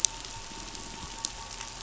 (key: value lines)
label: anthrophony, boat engine
recorder: SoundTrap 500

label: biophony
recorder: SoundTrap 500